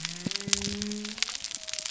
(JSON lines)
{"label": "biophony", "recorder": "SoundTrap 300"}